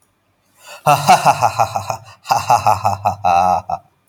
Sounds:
Laughter